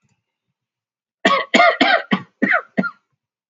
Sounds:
Cough